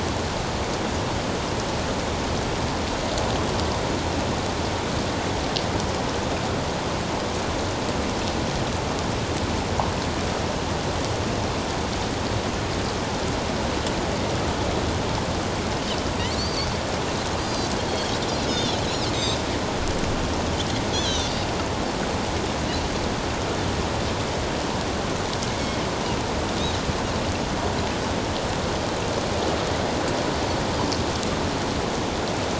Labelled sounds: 16.4	16.7	Pacific white-sided dolphin, 4.2 to 4.8 kHz
17.4	18.8	Pacific white-sided dolphin, 3.1 to 6.8 kHz
20.9	21.3	Pacific white-sided dolphin, 3.4 to 6.4 kHz

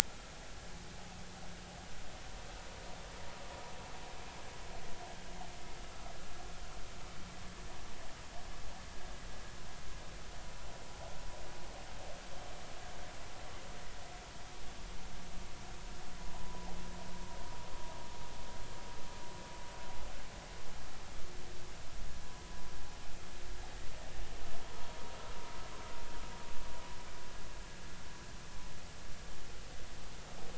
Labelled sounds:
0.1	0.3	vessel noise, 1.3 to 1.4 kHz
16.3	16.7	vessel noise, 0.83 to 1.0 kHz

